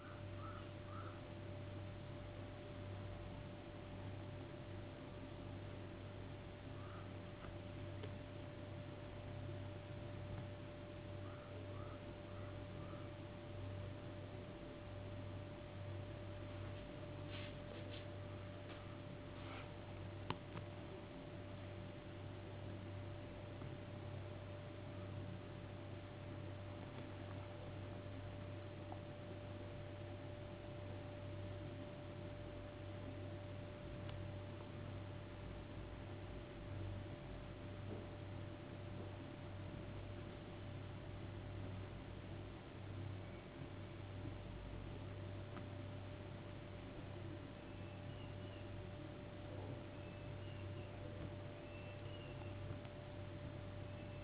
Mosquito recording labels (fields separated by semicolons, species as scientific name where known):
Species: no mosquito; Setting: insect culture